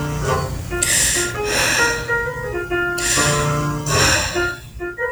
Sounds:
Sigh